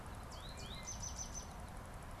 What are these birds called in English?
American Goldfinch